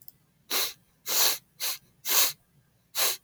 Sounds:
Sniff